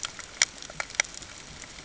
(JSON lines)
{"label": "ambient", "recorder": "HydroMoth"}